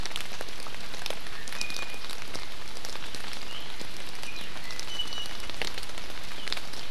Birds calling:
Iiwi (Drepanis coccinea)

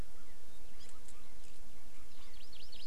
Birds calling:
Hawaii Amakihi (Chlorodrepanis virens)

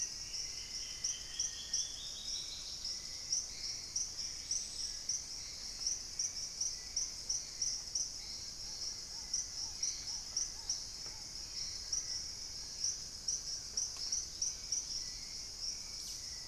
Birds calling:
Hauxwell's Thrush (Turdus hauxwelli), Black-faced Antthrush (Formicarius analis), Dusky-capped Greenlet (Pachysylvia hypoxantha), Dusky-throated Antshrike (Thamnomanes ardesiacus), Long-billed Woodcreeper (Nasica longirostris), Black-tailed Trogon (Trogon melanurus), Wing-barred Piprites (Piprites chloris)

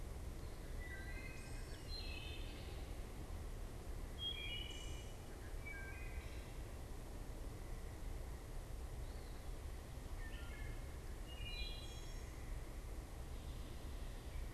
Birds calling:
Wood Thrush (Hylocichla mustelina)

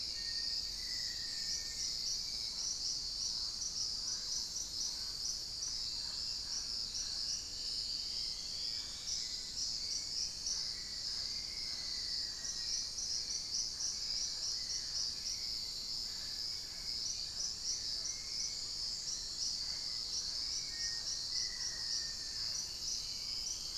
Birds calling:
Mealy Parrot (Amazona farinosa), Black-faced Antthrush (Formicarius analis), Hauxwell's Thrush (Turdus hauxwelli), Dusky-throated Antshrike (Thamnomanes ardesiacus)

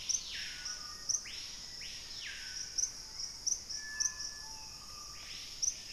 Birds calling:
Hauxwell's Thrush (Turdus hauxwelli), Thrush-like Wren (Campylorhynchus turdinus), Screaming Piha (Lipaugus vociferans), Black-faced Antthrush (Formicarius analis), Black-capped Becard (Pachyramphus marginatus)

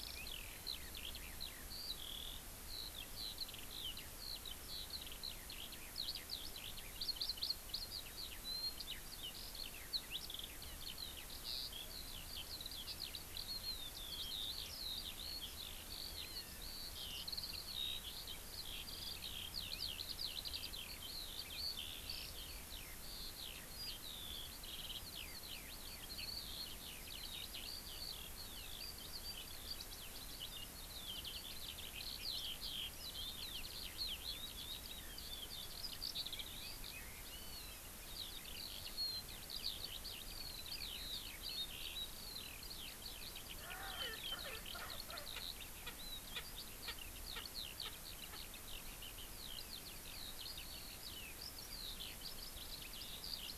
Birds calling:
Erckel's Francolin (Pternistis erckelii), Eurasian Skylark (Alauda arvensis), Hawaii Amakihi (Chlorodrepanis virens)

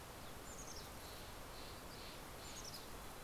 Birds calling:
Steller's Jay (Cyanocitta stelleri), Mountain Chickadee (Poecile gambeli)

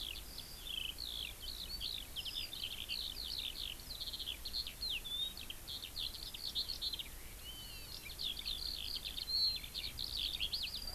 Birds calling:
Eurasian Skylark (Alauda arvensis), Hawaiian Hawk (Buteo solitarius)

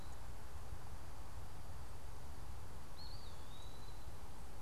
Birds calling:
Eastern Wood-Pewee (Contopus virens)

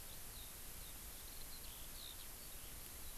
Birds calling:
Eurasian Skylark (Alauda arvensis)

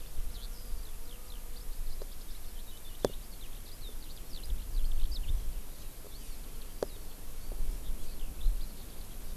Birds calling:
Eurasian Skylark (Alauda arvensis)

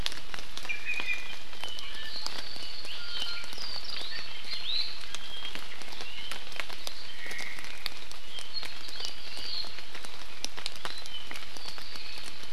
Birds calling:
Iiwi (Drepanis coccinea), Omao (Myadestes obscurus)

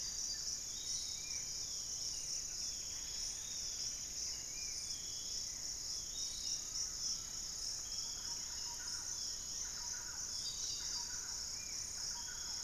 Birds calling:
Pygmy Antwren (Myrmotherula brachyura), Undulated Tinamou (Crypturellus undulatus), Long-winged Antwren (Myrmotherula longipennis), Plain-winged Antshrike (Thamnophilus schistaceus), Piratic Flycatcher (Legatus leucophaius), Barred Forest-Falcon (Micrastur ruficollis), Buff-throated Woodcreeper (Xiphorhynchus guttatus), Thrush-like Wren (Campylorhynchus turdinus), Spot-winged Antshrike (Pygiptila stellaris)

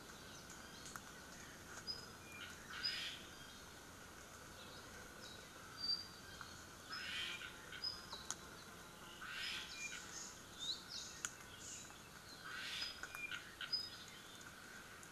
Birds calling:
Apapane (Himatione sanguinea), Omao (Myadestes obscurus), Iiwi (Drepanis coccinea)

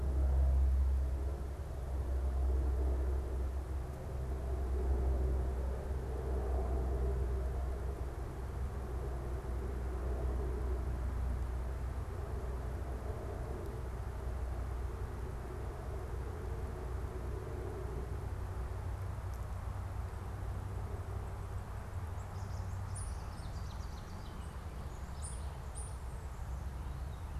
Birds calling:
Ovenbird (Seiurus aurocapilla)

